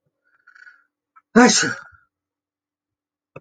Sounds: Sneeze